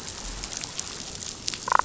{"label": "biophony, damselfish", "recorder": "SoundTrap 500"}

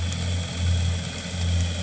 {"label": "anthrophony, boat engine", "recorder": "HydroMoth"}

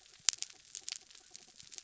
{"label": "anthrophony, mechanical", "recorder": "SoundTrap 300"}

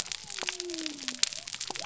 {"label": "biophony", "recorder": "SoundTrap 300"}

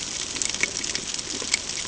{"label": "ambient", "recorder": "HydroMoth"}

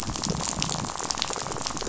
{"label": "biophony, rattle", "recorder": "SoundTrap 500"}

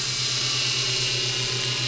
{"label": "anthrophony, boat engine", "recorder": "SoundTrap 500"}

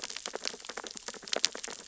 {"label": "biophony, sea urchins (Echinidae)", "recorder": "SoundTrap 600 or HydroMoth"}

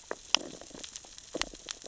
{"label": "biophony, sea urchins (Echinidae)", "recorder": "SoundTrap 600 or HydroMoth"}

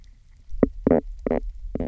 {"label": "biophony, knock croak", "recorder": "SoundTrap 300"}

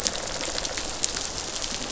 {"label": "biophony, rattle response", "recorder": "SoundTrap 500"}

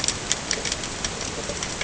{"label": "ambient", "recorder": "HydroMoth"}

